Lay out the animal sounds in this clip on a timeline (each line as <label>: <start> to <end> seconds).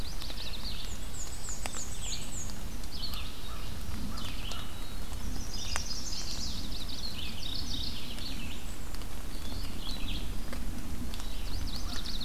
Yellow-rumped Warbler (Setophaga coronata): 0.0 to 1.0 seconds
Red-eyed Vireo (Vireo olivaceus): 0.0 to 12.2 seconds
Black-and-white Warbler (Mniotilta varia): 0.7 to 2.7 seconds
American Crow (Corvus brachyrhynchos): 2.9 to 5.1 seconds
Hermit Thrush (Catharus guttatus): 4.5 to 5.4 seconds
Chestnut-sided Warbler (Setophaga pensylvanica): 5.3 to 6.7 seconds
Yellow-rumped Warbler (Setophaga coronata): 5.9 to 7.4 seconds
Mourning Warbler (Geothlypis philadelphia): 7.2 to 8.0 seconds
American Crow (Corvus brachyrhynchos): 11.3 to 12.2 seconds
Yellow-rumped Warbler (Setophaga coronata): 11.4 to 12.2 seconds